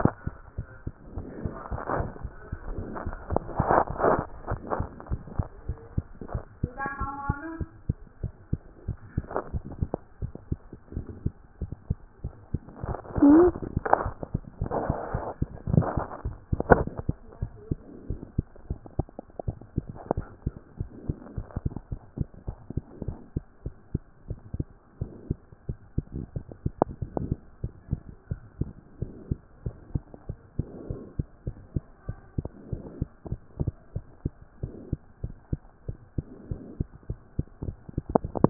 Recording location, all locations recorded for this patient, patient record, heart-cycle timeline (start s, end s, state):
tricuspid valve (TV)
aortic valve (AV)+pulmonary valve (PV)+tricuspid valve (TV)
#Age: Child
#Sex: Female
#Height: 110.0 cm
#Weight: 19.9 kg
#Pregnancy status: False
#Murmur: Absent
#Murmur locations: nan
#Most audible location: nan
#Systolic murmur timing: nan
#Systolic murmur shape: nan
#Systolic murmur grading: nan
#Systolic murmur pitch: nan
#Systolic murmur quality: nan
#Diastolic murmur timing: nan
#Diastolic murmur shape: nan
#Diastolic murmur grading: nan
#Diastolic murmur pitch: nan
#Diastolic murmur quality: nan
#Outcome: Normal
#Campaign: 2014 screening campaign
0.00	27.48	unannotated
27.48	27.62	diastole
27.62	27.74	S1
27.74	27.90	systole
27.90	28.00	S2
28.00	28.30	diastole
28.30	28.40	S1
28.40	28.58	systole
28.58	28.70	S2
28.70	29.00	diastole
29.00	29.12	S1
29.12	29.30	systole
29.30	29.38	S2
29.38	29.64	diastole
29.64	29.76	S1
29.76	29.94	systole
29.94	30.04	S2
30.04	30.28	diastole
30.28	30.40	S1
30.40	30.58	systole
30.58	30.66	S2
30.66	30.88	diastole
30.88	31.00	S1
31.00	31.18	systole
31.18	31.26	S2
31.26	31.46	diastole
31.46	31.58	S1
31.58	31.74	systole
31.74	31.84	S2
31.84	32.08	diastole
32.08	32.18	S1
32.18	32.36	systole
32.36	32.48	S2
32.48	32.72	diastole
32.72	32.82	S1
32.82	33.00	systole
33.00	33.08	S2
33.08	33.30	diastole
33.30	33.40	S1
33.40	33.60	systole
33.60	33.72	S2
33.72	33.96	diastole
33.96	34.06	S1
34.06	34.24	systole
34.24	34.34	S2
34.34	34.62	diastole
34.62	34.72	S1
34.72	34.90	systole
34.90	34.98	S2
34.98	35.22	diastole
35.22	35.34	S1
35.34	35.52	systole
35.52	35.62	S2
35.62	35.88	diastole
35.88	35.98	S1
35.98	36.16	systole
36.16	36.26	S2
36.26	36.50	diastole
36.50	36.60	S1
36.60	36.78	systole
36.78	36.88	S2
36.88	37.07	diastole
37.07	37.20	S1
37.20	38.50	unannotated